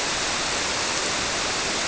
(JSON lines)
{"label": "biophony", "recorder": "SoundTrap 300"}